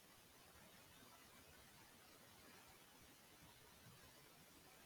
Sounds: Throat clearing